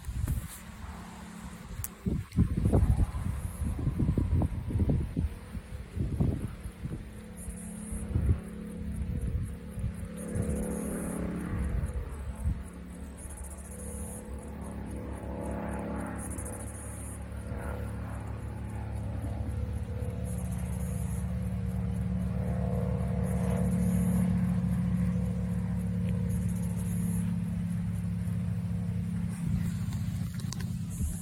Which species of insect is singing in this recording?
Pauropsalta mneme